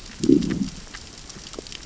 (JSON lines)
{"label": "biophony, growl", "recorder": "SoundTrap 600 or HydroMoth"}